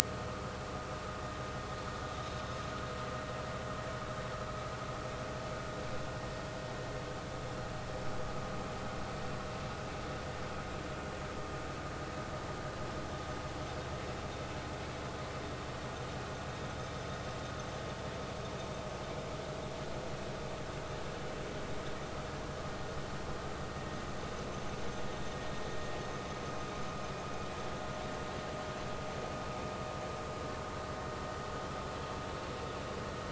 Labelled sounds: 0.0	0.5	vessel noise, 0.99 to 1.4 kHz

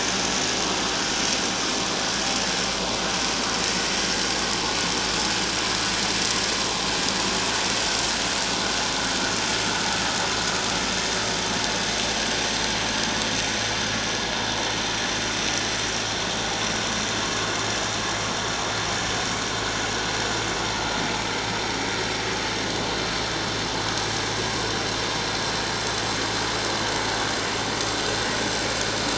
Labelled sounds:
3.6	3.9	vessel noise, 1.8 to 2.1 kHz

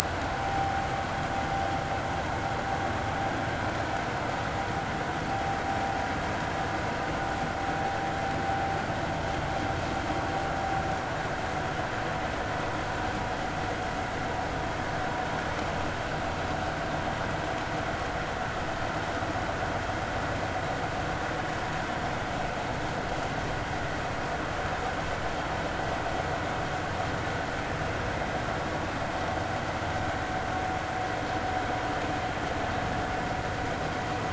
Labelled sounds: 0.2	0.9	vessel noise, 0.80 to 0.86 kHz

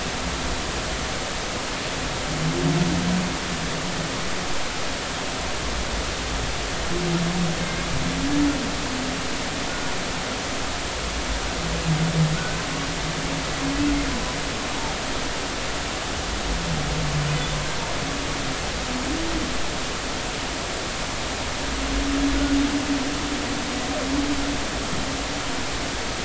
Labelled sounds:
7.6	7.9	humpback whale, 2.1 to 2.2 kHz
9.7	9.9	humpback whale, 1.4 to 1.5 kHz
12.3	12.6	humpback whale, 1.4 to 1.6 kHz

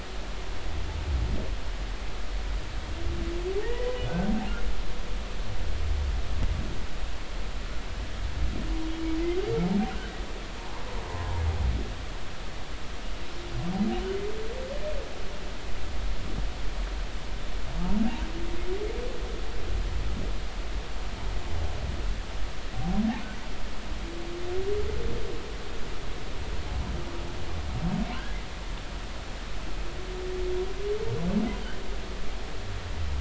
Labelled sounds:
3.6	3.9	humpback whale, 1.8 to 2.0 kHz
9.9	10.2	humpback whale, 1.4 to 1.6 kHz
11.1	11.4	humpback whale, 0.90 to 1.1 kHz
13.9	14.2	humpback whale, 2.8 to 3.1 kHz
28.1	28.4	humpback whale, 1.4 to 1.8 kHz

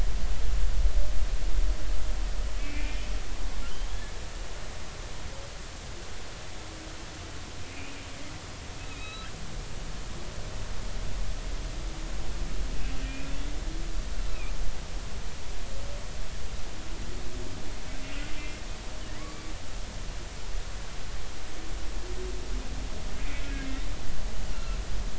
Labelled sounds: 2.6	3.0	humpback whale, 2.1 to 2.5 kHz
3.6	3.9	humpback whale, 2.7 to 3.2 kHz
7.7	8.0	humpback whale, 2.3 to 2.6 kHz
8.9	9.3	humpback whale, 1.2 to 4.0 kHz
13.1	13.3	humpback whale, 2.3 to 2.6 kHz
14.3	14.5	humpback whale, 2.2 to 2.7 kHz
18.4	18.6	humpback whale, 2.0 to 2.2 kHz
19.2	19.4	humpback whale, 0.99 to 1.3 kHz
23.5	23.8	humpback whale, 2.1 to 2.2 kHz
24.5	24.8	humpback whale, 1.3 to 1.4 kHz

